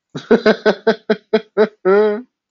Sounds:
Laughter